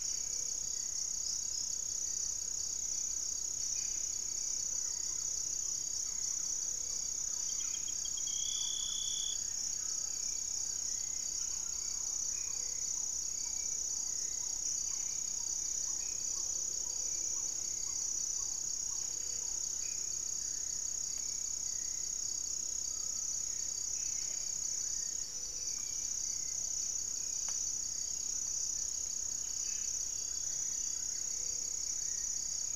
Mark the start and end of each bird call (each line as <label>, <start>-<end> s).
Buff-breasted Wren (Cantorchilus leucotis), 0.0-32.8 s
Hauxwell's Thrush (Turdus hauxwelli), 0.0-32.8 s
Gray-fronted Dove (Leptotila rufaxilla), 0.1-0.8 s
Black-faced Antthrush (Formicarius analis), 3.5-32.8 s
Thrush-like Wren (Campylorhynchus turdinus), 4.5-12.9 s
Gray-fronted Dove (Leptotila rufaxilla), 6.5-7.2 s
Black-tailed Trogon (Trogon melanurus), 11.3-19.8 s
Gray-fronted Dove (Leptotila rufaxilla), 12.3-12.9 s
Gray-fronted Dove (Leptotila rufaxilla), 19.0-19.6 s
unidentified bird, 22.7-23.6 s
unidentified bird, 24.0-29.7 s
Gray-fronted Dove (Leptotila rufaxilla), 25.1-25.8 s
Gray-cowled Wood-Rail (Aramides cajaneus), 29.9-32.8 s
Gray-fronted Dove (Leptotila rufaxilla), 31.2-31.9 s